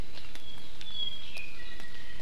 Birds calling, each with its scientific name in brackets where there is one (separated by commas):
Apapane (Himatione sanguinea)